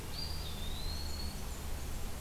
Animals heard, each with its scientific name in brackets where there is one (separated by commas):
Eastern Wood-Pewee (Contopus virens), Blackburnian Warbler (Setophaga fusca)